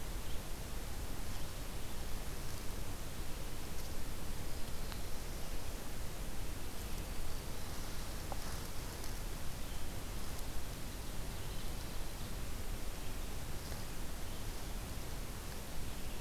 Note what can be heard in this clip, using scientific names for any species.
Setophaga virens